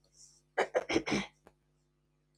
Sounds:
Throat clearing